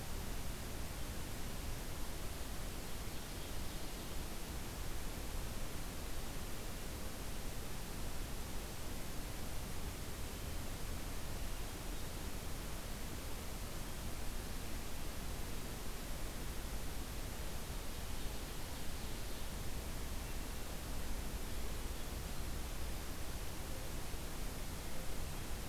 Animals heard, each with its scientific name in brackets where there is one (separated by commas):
Ovenbird (Seiurus aurocapilla), Hermit Thrush (Catharus guttatus)